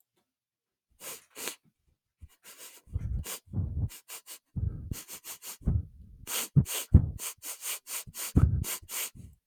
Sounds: Sniff